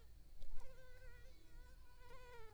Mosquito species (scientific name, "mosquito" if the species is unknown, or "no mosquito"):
Culex pipiens complex